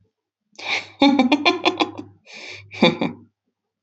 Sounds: Laughter